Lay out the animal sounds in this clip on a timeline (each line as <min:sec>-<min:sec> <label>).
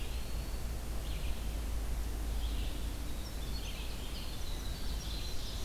0:00.0-0:00.9 Eastern Wood-Pewee (Contopus virens)
0:00.0-0:05.6 Red-eyed Vireo (Vireo olivaceus)
0:02.7-0:05.6 Winter Wren (Troglodytes hiemalis)
0:04.7-0:05.6 Ovenbird (Seiurus aurocapilla)